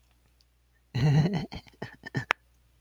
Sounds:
Laughter